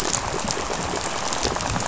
{"label": "biophony, rattle", "recorder": "SoundTrap 500"}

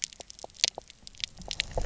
{"label": "biophony, pulse", "recorder": "SoundTrap 300"}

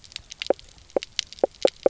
{"label": "biophony, knock croak", "recorder": "SoundTrap 300"}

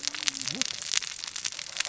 {"label": "biophony, cascading saw", "recorder": "SoundTrap 600 or HydroMoth"}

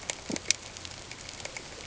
{"label": "ambient", "recorder": "HydroMoth"}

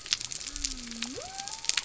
{"label": "biophony", "recorder": "SoundTrap 300"}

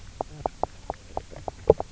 {"label": "biophony, knock croak", "recorder": "SoundTrap 300"}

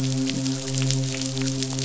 {"label": "biophony, midshipman", "recorder": "SoundTrap 500"}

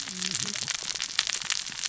{"label": "biophony, cascading saw", "recorder": "SoundTrap 600 or HydroMoth"}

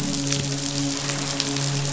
{"label": "biophony, midshipman", "recorder": "SoundTrap 500"}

